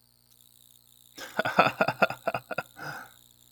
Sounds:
Laughter